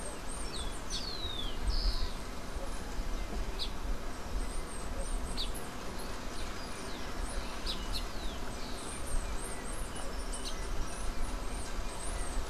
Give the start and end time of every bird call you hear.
[0.00, 8.21] Silver-beaked Tanager (Ramphocelus carbo)
[0.00, 12.50] Bananaquit (Coereba flaveola)
[0.31, 2.31] Rufous-collared Sparrow (Zonotrichia capensis)

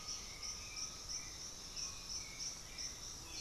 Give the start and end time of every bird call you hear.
[0.00, 1.27] Undulated Tinamou (Crypturellus undulatus)
[0.00, 3.40] Hauxwell's Thrush (Turdus hauxwelli)
[0.00, 3.40] Russet-backed Oropendola (Psarocolius angustifrons)

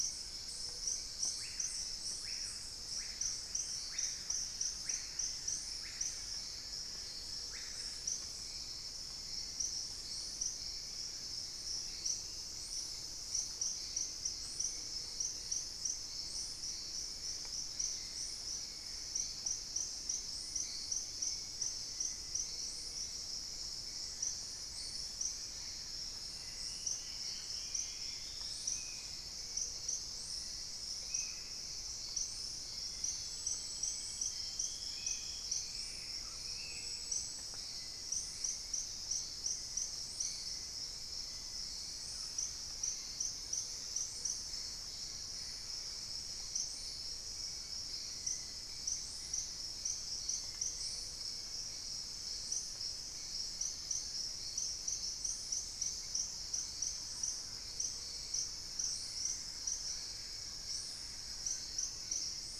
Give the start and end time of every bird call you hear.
[0.00, 62.60] Hauxwell's Thrush (Turdus hauxwelli)
[0.36, 1.16] Gray-fronted Dove (Leptotila rufaxilla)
[1.16, 8.66] Screaming Piha (Lipaugus vociferans)
[5.76, 8.16] unidentified bird
[9.56, 11.56] Plain-winged Antshrike (Thamnophilus schistaceus)
[11.66, 14.26] Thrush-like Wren (Campylorhynchus turdinus)
[23.96, 26.36] Plain-winged Antshrike (Thamnophilus schistaceus)
[26.06, 29.06] Dusky-throated Antshrike (Thamnomanes ardesiacus)
[28.56, 37.16] Spot-winged Antshrike (Pygiptila stellaris)
[29.26, 30.46] Ruddy Quail-Dove (Geotrygon montana)
[35.46, 36.36] Black-spotted Bare-eye (Phlegopsis nigromaculata)
[35.86, 37.36] Ruddy Quail-Dove (Geotrygon montana)
[40.06, 43.56] unidentified bird
[41.46, 47.46] Thrush-like Wren (Campylorhynchus turdinus)
[44.06, 46.16] Gray Antbird (Cercomacra cinerascens)
[47.66, 51.26] unidentified bird
[52.06, 54.46] Plain-winged Antshrike (Thamnophilus schistaceus)
[56.16, 62.60] Thrush-like Wren (Campylorhynchus turdinus)
[59.96, 62.36] Buff-throated Woodcreeper (Xiphorhynchus guttatus)

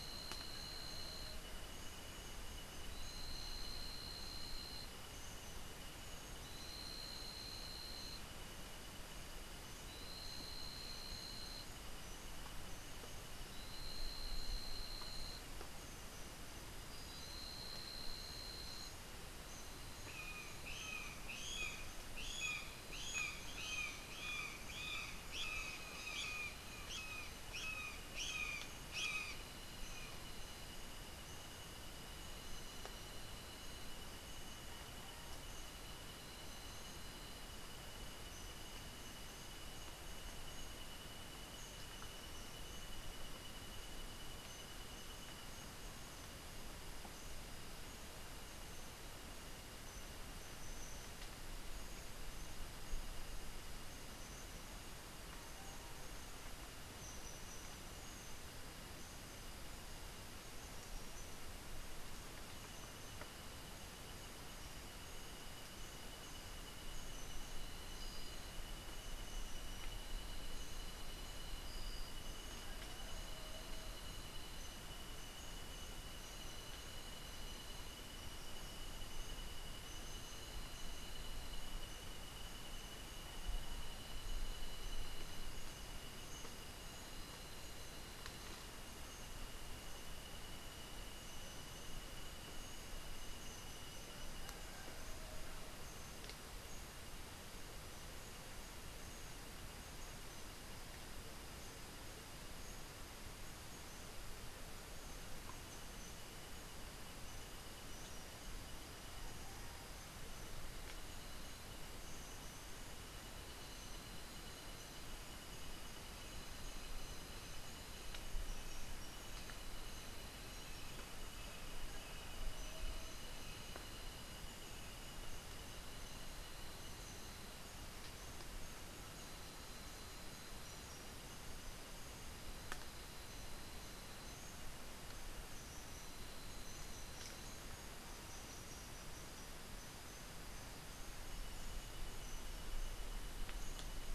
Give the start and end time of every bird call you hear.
[20.05, 29.55] Brown Jay (Psilorhinus morio)

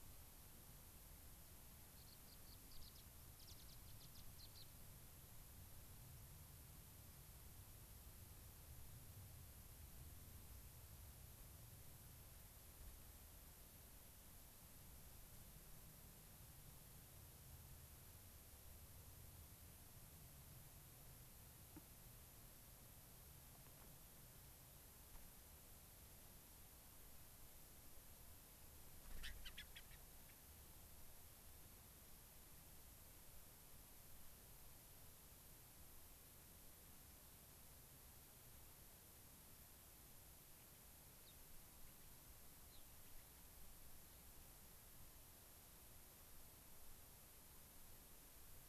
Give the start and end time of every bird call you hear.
[1.95, 4.64] Gray-crowned Rosy-Finch (Leucosticte tephrocotis)
[28.95, 30.34] Gray-crowned Rosy-Finch (Leucosticte tephrocotis)
[41.24, 41.34] Gray-crowned Rosy-Finch (Leucosticte tephrocotis)
[42.65, 42.84] Gray-crowned Rosy-Finch (Leucosticte tephrocotis)

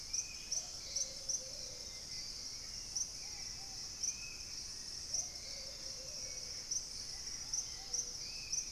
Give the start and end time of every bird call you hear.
[0.00, 8.71] Hauxwell's Thrush (Turdus hauxwelli)
[0.00, 8.71] Plumbeous Pigeon (Patagioenas plumbea)
[0.00, 8.71] Ruddy Pigeon (Patagioenas subvinacea)
[0.00, 8.71] Spot-winged Antshrike (Pygiptila stellaris)

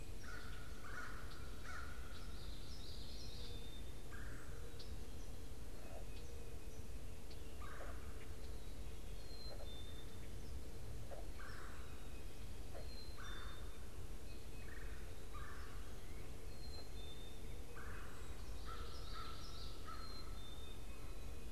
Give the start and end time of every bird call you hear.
[0.00, 7.80] Red-winged Blackbird (Agelaius phoeniceus)
[0.10, 2.50] American Crow (Corvus brachyrhynchos)
[2.30, 4.10] Common Yellowthroat (Geothlypis trichas)
[4.00, 21.51] Red-bellied Woodpecker (Melanerpes carolinus)
[9.00, 21.51] Black-capped Chickadee (Poecile atricapillus)
[18.50, 20.10] Common Yellowthroat (Geothlypis trichas)
[18.60, 20.50] American Crow (Corvus brachyrhynchos)

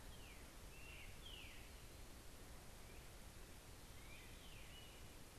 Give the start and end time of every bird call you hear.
[0.00, 5.39] Great Crested Flycatcher (Myiarchus crinitus)
[0.00, 5.39] Veery (Catharus fuscescens)

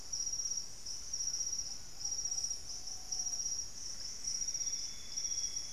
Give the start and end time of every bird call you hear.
[0.00, 3.42] Thrush-like Wren (Campylorhynchus turdinus)
[0.00, 5.73] Ruddy Pigeon (Patagioenas subvinacea)
[3.52, 5.73] Plumbeous Antbird (Myrmelastes hyperythrus)
[4.22, 5.73] Amazonian Grosbeak (Cyanoloxia rothschildii)

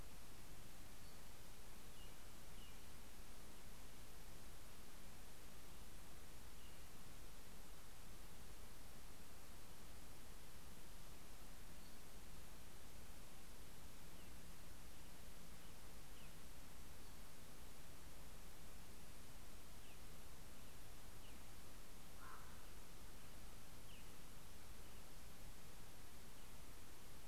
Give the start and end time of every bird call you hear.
[0.70, 1.40] Pacific-slope Flycatcher (Empidonax difficilis)
[1.50, 7.10] American Robin (Turdus migratorius)
[11.40, 12.30] Pacific-slope Flycatcher (Empidonax difficilis)
[13.60, 16.70] American Robin (Turdus migratorius)
[16.60, 17.60] Pacific-slope Flycatcher (Empidonax difficilis)
[19.40, 24.80] American Robin (Turdus migratorius)
[21.70, 23.00] Common Raven (Corvus corax)

